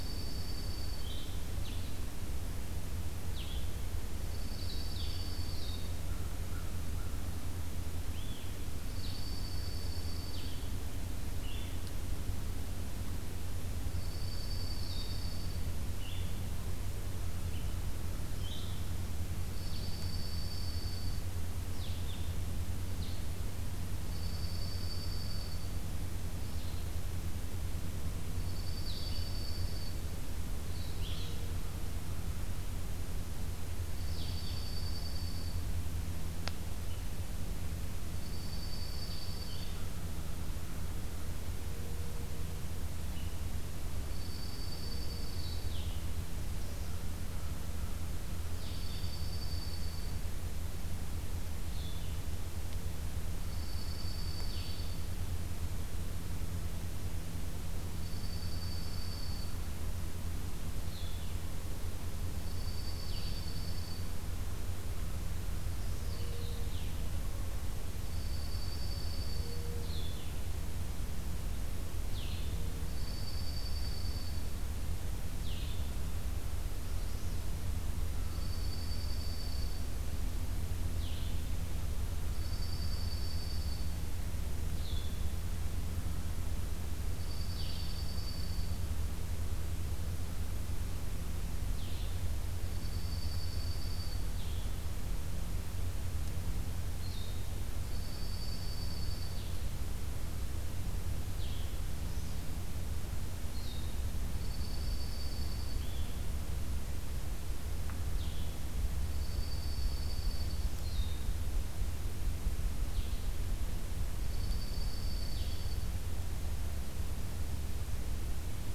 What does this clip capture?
Dark-eyed Junco, Blue-headed Vireo, American Crow, Magnolia Warbler